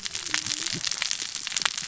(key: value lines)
label: biophony, cascading saw
recorder: SoundTrap 600 or HydroMoth